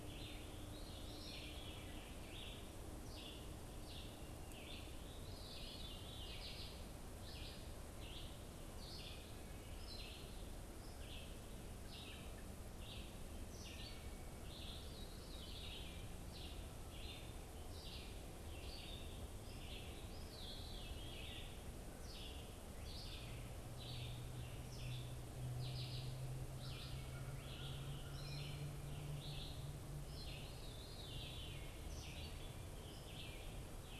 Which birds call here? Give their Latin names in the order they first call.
Vireo olivaceus, Catharus fuscescens, Corvus brachyrhynchos